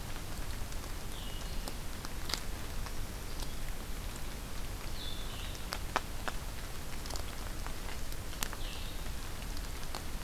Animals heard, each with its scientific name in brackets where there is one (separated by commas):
Ovenbird (Seiurus aurocapilla), Blue-headed Vireo (Vireo solitarius)